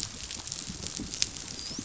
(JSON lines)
{"label": "biophony, dolphin", "recorder": "SoundTrap 500"}